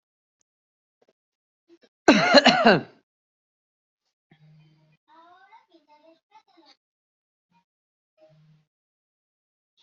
{"expert_labels": [{"quality": "good", "cough_type": "dry", "dyspnea": false, "wheezing": false, "stridor": false, "choking": false, "congestion": false, "nothing": true, "diagnosis": "healthy cough", "severity": "pseudocough/healthy cough"}], "age": 28, "gender": "male", "respiratory_condition": true, "fever_muscle_pain": false, "status": "symptomatic"}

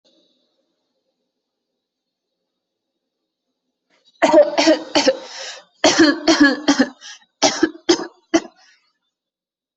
{"expert_labels": [{"quality": "ok", "cough_type": "dry", "dyspnea": false, "wheezing": false, "stridor": false, "choking": false, "congestion": false, "nothing": true, "diagnosis": "healthy cough", "severity": "pseudocough/healthy cough"}], "age": 22, "gender": "female", "respiratory_condition": false, "fever_muscle_pain": false, "status": "healthy"}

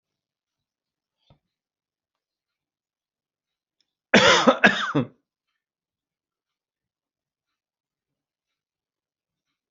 {"expert_labels": [{"quality": "good", "cough_type": "dry", "dyspnea": false, "wheezing": false, "stridor": false, "choking": false, "congestion": false, "nothing": true, "diagnosis": "COVID-19", "severity": "mild"}], "age": 55, "gender": "male", "respiratory_condition": false, "fever_muscle_pain": false, "status": "symptomatic"}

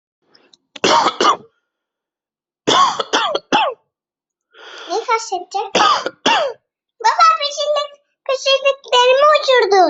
{"expert_labels": [{"quality": "good", "cough_type": "wet", "dyspnea": false, "wheezing": false, "stridor": false, "choking": false, "congestion": false, "nothing": true, "diagnosis": "upper respiratory tract infection", "severity": "mild"}], "age": 35, "gender": "male", "respiratory_condition": false, "fever_muscle_pain": false, "status": "healthy"}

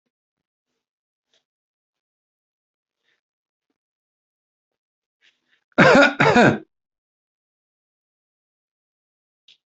{"expert_labels": [{"quality": "good", "cough_type": "dry", "dyspnea": false, "wheezing": false, "stridor": false, "choking": false, "congestion": false, "nothing": true, "diagnosis": "healthy cough", "severity": "pseudocough/healthy cough"}], "age": 41, "gender": "male", "respiratory_condition": false, "fever_muscle_pain": false, "status": "symptomatic"}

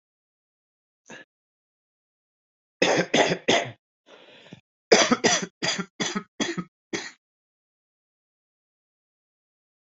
{"expert_labels": [{"quality": "good", "cough_type": "dry", "dyspnea": true, "wheezing": false, "stridor": false, "choking": false, "congestion": false, "nothing": false, "diagnosis": "COVID-19", "severity": "mild"}], "age": 34, "gender": "male", "respiratory_condition": false, "fever_muscle_pain": false, "status": "COVID-19"}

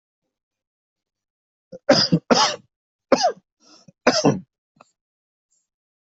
{"expert_labels": [{"quality": "good", "cough_type": "dry", "dyspnea": false, "wheezing": false, "stridor": false, "choking": false, "congestion": false, "nothing": true, "diagnosis": "upper respiratory tract infection", "severity": "mild"}], "age": 36, "gender": "male", "respiratory_condition": false, "fever_muscle_pain": false, "status": "healthy"}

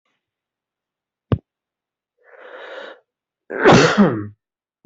{"expert_labels": [{"quality": "good", "cough_type": "unknown", "dyspnea": false, "wheezing": false, "stridor": false, "choking": false, "congestion": false, "nothing": false, "diagnosis": "healthy cough", "severity": "pseudocough/healthy cough"}]}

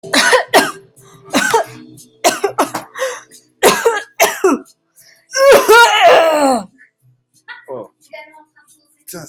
{"expert_labels": [{"quality": "good", "cough_type": "dry", "dyspnea": true, "wheezing": false, "stridor": false, "choking": false, "congestion": false, "nothing": false, "diagnosis": "upper respiratory tract infection", "severity": "severe"}], "age": 31, "gender": "female", "respiratory_condition": false, "fever_muscle_pain": false, "status": "COVID-19"}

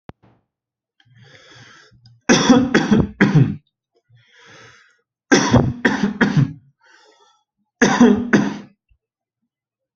{"expert_labels": [{"quality": "good", "cough_type": "dry", "dyspnea": false, "wheezing": false, "stridor": false, "choking": false, "congestion": false, "nothing": true, "diagnosis": "upper respiratory tract infection", "severity": "mild"}], "age": 20, "gender": "male", "respiratory_condition": false, "fever_muscle_pain": false, "status": "healthy"}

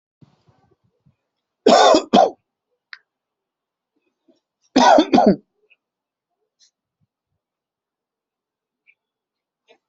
{"expert_labels": [{"quality": "good", "cough_type": "dry", "dyspnea": false, "wheezing": true, "stridor": false, "choking": false, "congestion": false, "nothing": false, "diagnosis": "obstructive lung disease", "severity": "mild"}]}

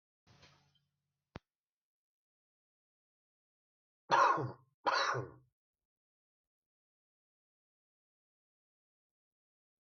{"expert_labels": [{"quality": "ok", "cough_type": "dry", "dyspnea": false, "wheezing": false, "stridor": false, "choking": false, "congestion": false, "nothing": true, "diagnosis": "healthy cough", "severity": "pseudocough/healthy cough"}], "age": 63, "gender": "male", "respiratory_condition": true, "fever_muscle_pain": false, "status": "COVID-19"}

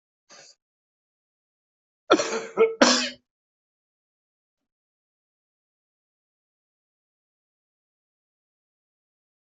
{"expert_labels": [{"quality": "good", "cough_type": "dry", "dyspnea": false, "wheezing": false, "stridor": false, "choking": false, "congestion": false, "nothing": true, "diagnosis": "upper respiratory tract infection", "severity": "unknown"}], "age": 48, "gender": "female", "respiratory_condition": true, "fever_muscle_pain": false, "status": "COVID-19"}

